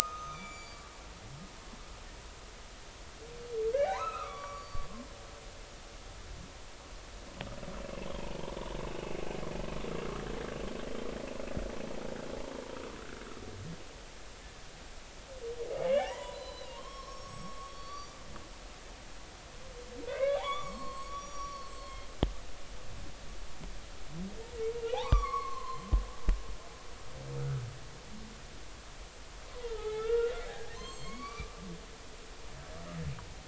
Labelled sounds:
0.3	1.4	humpback whale, 1.0 to 7.0 kHz
3.7	4.8	humpback whale, 0.80 to 5.8 kHz
9.0	9.4	humpback whale, 0.83 to 1.2 kHz
15.8	18.2	humpback whale, 0.80 to 5.9 kHz
20.1	22.1	humpback whale, 0.80 to 7.0 kHz
24.9	25.8	humpback whale, 0.80 to 2.6 kHz
27.4	27.6	humpback whale, 1.2 to 1.6 kHz
29.5	31.6	humpback whale, 0.80 to 7.6 kHz

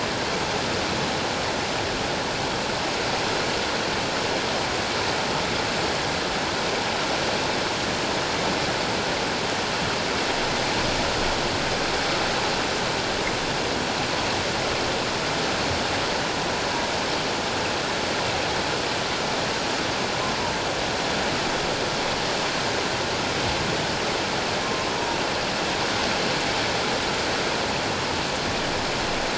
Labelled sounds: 24.9	25.2	humpback whale, 0.91 to 0.97 kHz

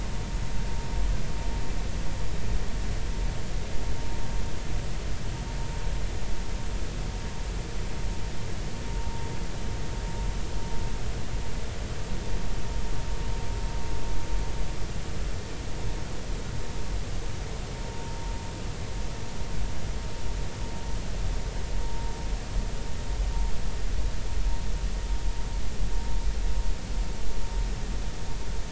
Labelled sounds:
21.8	22.1	vessel noise, 0.90 to 0.96 kHz

